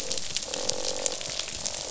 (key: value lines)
label: biophony, croak
recorder: SoundTrap 500